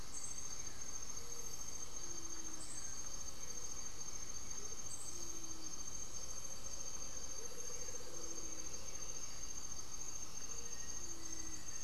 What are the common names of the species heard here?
unidentified bird, Blue-gray Saltator, Gray-fronted Dove, Amazonian Motmot, Black-faced Antthrush